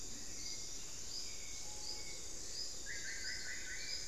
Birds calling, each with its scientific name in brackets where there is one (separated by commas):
Screaming Piha (Lipaugus vociferans), Spot-winged Antshrike (Pygiptila stellaris), Hauxwell's Thrush (Turdus hauxwelli), Solitary Black Cacique (Cacicus solitarius)